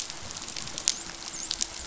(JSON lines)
{"label": "biophony, dolphin", "recorder": "SoundTrap 500"}